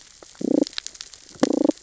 {"label": "biophony, damselfish", "recorder": "SoundTrap 600 or HydroMoth"}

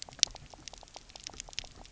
{"label": "biophony, knock croak", "recorder": "SoundTrap 300"}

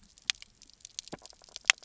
{"label": "biophony", "recorder": "SoundTrap 300"}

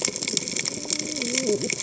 {"label": "biophony, cascading saw", "recorder": "HydroMoth"}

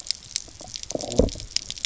{"label": "biophony, low growl", "recorder": "SoundTrap 300"}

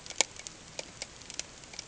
{"label": "ambient", "recorder": "HydroMoth"}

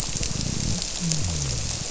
{"label": "biophony", "recorder": "SoundTrap 300"}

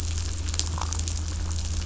{"label": "anthrophony, boat engine", "recorder": "SoundTrap 500"}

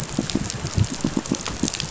{"label": "biophony, pulse", "recorder": "SoundTrap 500"}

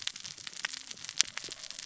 {"label": "biophony, cascading saw", "recorder": "SoundTrap 600 or HydroMoth"}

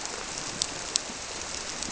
{"label": "biophony", "recorder": "SoundTrap 300"}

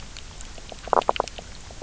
{"label": "biophony, knock croak", "recorder": "SoundTrap 300"}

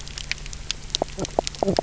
{"label": "biophony, knock croak", "recorder": "SoundTrap 300"}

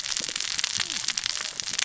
{"label": "biophony, cascading saw", "recorder": "SoundTrap 600 or HydroMoth"}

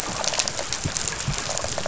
{"label": "biophony", "recorder": "SoundTrap 500"}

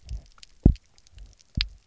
{"label": "biophony, double pulse", "recorder": "SoundTrap 300"}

